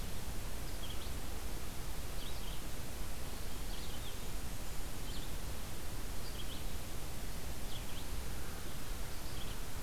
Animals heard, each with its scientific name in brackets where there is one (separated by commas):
Red-eyed Vireo (Vireo olivaceus)